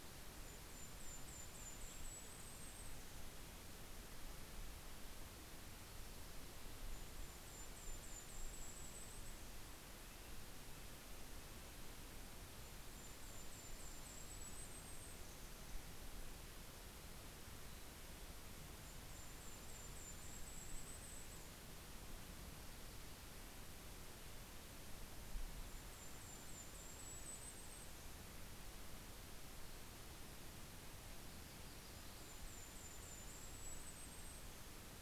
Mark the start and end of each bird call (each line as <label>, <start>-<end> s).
Golden-crowned Kinglet (Regulus satrapa), 0.0-3.8 s
Golden-crowned Kinglet (Regulus satrapa), 6.5-10.2 s
Red-breasted Nuthatch (Sitta canadensis), 9.1-12.1 s
Golden-crowned Kinglet (Regulus satrapa), 12.3-16.1 s
Mountain Chickadee (Poecile gambeli), 16.9-18.9 s
Golden-crowned Kinglet (Regulus satrapa), 18.6-22.1 s
Golden-crowned Kinglet (Regulus satrapa), 25.0-28.5 s
Yellow-rumped Warbler (Setophaga coronata), 30.0-33.0 s
Golden-crowned Kinglet (Regulus satrapa), 31.8-35.0 s